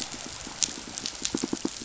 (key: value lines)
label: biophony, pulse
recorder: SoundTrap 500